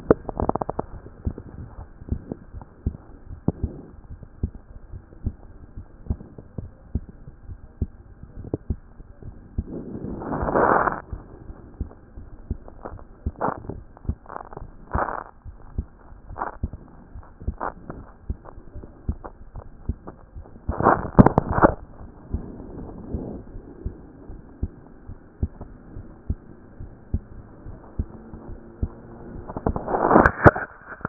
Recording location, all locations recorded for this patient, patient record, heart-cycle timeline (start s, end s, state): aortic valve (AV)
aortic valve (AV)+pulmonary valve (PV)+tricuspid valve (TV)+mitral valve (MV)
#Age: Child
#Sex: Female
#Height: 134.0 cm
#Weight: 29.4 kg
#Pregnancy status: False
#Murmur: Absent
#Murmur locations: nan
#Most audible location: nan
#Systolic murmur timing: nan
#Systolic murmur shape: nan
#Systolic murmur grading: nan
#Systolic murmur pitch: nan
#Systolic murmur quality: nan
#Diastolic murmur timing: nan
#Diastolic murmur shape: nan
#Diastolic murmur grading: nan
#Diastolic murmur pitch: nan
#Diastolic murmur quality: nan
#Outcome: Normal
#Campaign: 2014 screening campaign
0.00	4.10	unannotated
4.10	4.20	S1
4.20	4.42	systole
4.42	4.52	S2
4.52	4.92	diastole
4.92	5.02	S1
5.02	5.24	systole
5.24	5.34	S2
5.34	5.76	diastole
5.76	5.86	S1
5.86	6.08	systole
6.08	6.18	S2
6.18	6.58	diastole
6.58	6.70	S1
6.70	6.94	systole
6.94	7.04	S2
7.04	7.48	diastole
7.48	7.60	S1
7.60	7.80	systole
7.80	7.90	S2
7.90	8.38	diastole
8.38	8.50	S1
8.50	8.71	systole
8.71	8.80	S2
8.80	9.24	diastole
9.24	9.36	S1
9.36	9.56	systole
9.56	9.66	S2
9.66	10.12	diastole
10.12	31.09	unannotated